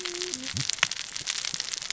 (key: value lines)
label: biophony, cascading saw
recorder: SoundTrap 600 or HydroMoth